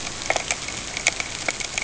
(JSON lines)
{"label": "ambient", "recorder": "HydroMoth"}